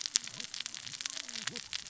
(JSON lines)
{"label": "biophony, cascading saw", "recorder": "SoundTrap 600 or HydroMoth"}